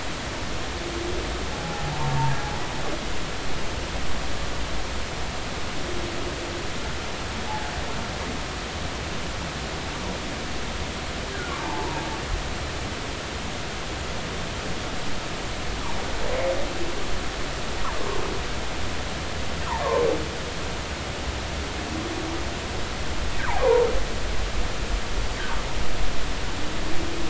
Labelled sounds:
1.5	2.3	humpback whale, 0.80 to 1.1 kHz
11.3	12.1	humpback whale, 0.83 to 1.7 kHz
19.8	20.1	humpback whale, 0.86 to 1.2 kHz
23.4	23.9	humpback whale, 0.80 to 1.3 kHz

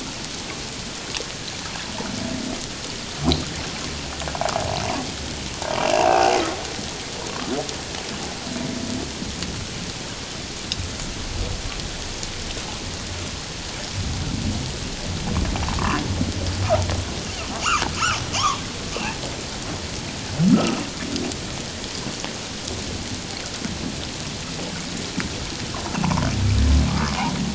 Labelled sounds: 5.6	6.4	humpback whale, 0.78 to 2.9 kHz
15.7	16.0	humpback whale, 0.97 to 1.8 kHz
18.3	18.6	humpback whale, 0.78 to 1.3 kHz
26.0	27.2	humpback whale, 0.78 to 1.4 kHz

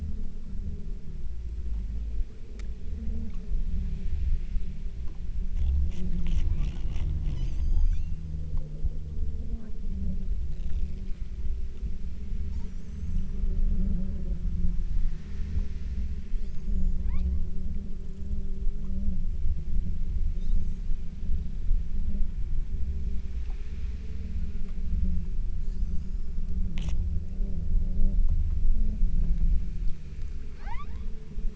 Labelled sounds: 7.2	8.4	killer whale, southern Alaska resident, 0.68 to 8.0 kHz
12.6	13.5	killer whale, southern Alaska resident, 3.4 to 8.0 kHz
16.3	17.5	killer whale, southern Alaska resident, 0.68 to 8.0 kHz
20.4	21.1	killer whale, southern Alaska resident, 3.5 to 8.0 kHz
25.6	26.5	killer whale, southern Alaska resident, 4.0 to 8.0 kHz
30.6	31.3	killer whale, southern Alaska resident, 0.50 to 7.1 kHz

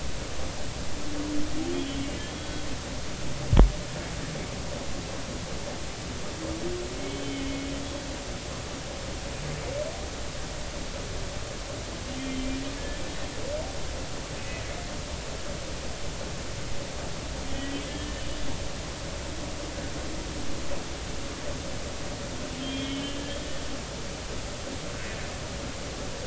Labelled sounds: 1.6	2.6	humpback whale, 2.7 to 3.4 kHz
7.1	7.7	humpback whale, 2.0 to 3.2 kHz
12.2	12.5	humpback whale, 3.1 to 3.3 kHz
14.4	14.6	humpback whale, 2.5 to 2.6 kHz
17.5	18.2	humpback whale, 1.7 to 3.3 kHz
22.6	23.5	humpback whale, 2.1 to 3.4 kHz

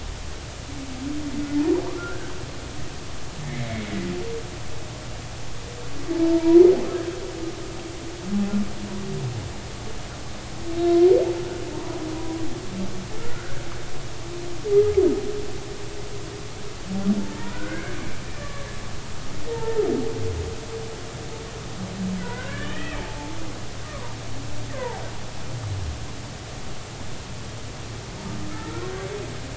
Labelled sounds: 2.0	2.3	humpback whale, 1.3 to 1.7 kHz
4.4	4.9	humpback whale, 2.0 to 2.3 kHz
6.3	6.6	humpback whale, 0.86 to 1.0 kHz
11.7	12.0	humpback whale, 0.86 to 1.1 kHz
13.2	13.6	humpback whale, 1.3 to 1.7 kHz
17.2	18.7	humpback whale, 0.86 to 2.3 kHz
19.5	19.8	humpback whale, 0.83 to 0.96 kHz
22.2	23.4	humpback whale, 0.83 to 3.3 kHz
23.8	24.1	humpback whale, 0.90 to 1.2 kHz
24.7	25.0	humpback whale, 0.80 to 1.1 kHz
28.5	28.9	humpback whale, 1.2 to 1.5 kHz

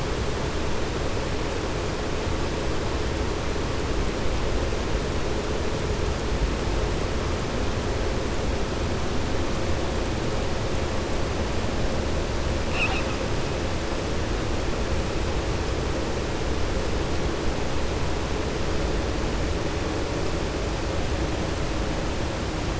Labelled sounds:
12.6	13.1	killer whale, southern resident, 0.78 to 5.4 kHz

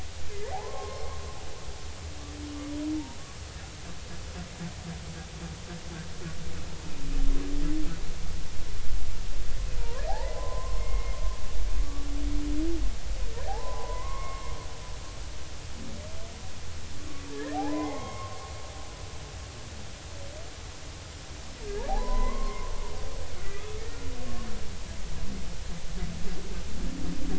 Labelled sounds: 0.5	1.2	humpback whale, 0.80 to 2.2 kHz
9.8	11.2	humpback whale, 0.80 to 2.2 kHz
13.5	14.5	humpback whale, 0.80 to 2.2 kHz
17.3	18.4	humpback whale, 0.80 to 2.2 kHz
21.6	22.7	humpback whale, 0.80 to 2.2 kHz
23.5	23.8	humpback whale, 1.2 to 2.6 kHz

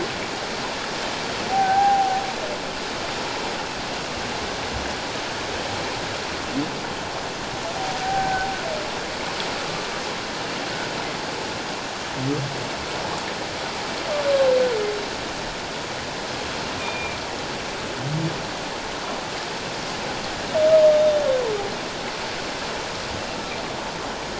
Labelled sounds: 1.5	2.2	humpback whale, 0.78 to 1.7 kHz
8.0	8.5	humpback whale, 0.78 to 1.6 kHz
16.8	17.2	humpback whale, 2.3 to 3.7 kHz
20.8	21.2	humpback whale, 3.5 to 3.8 kHz

